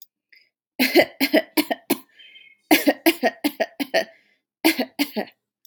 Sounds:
Cough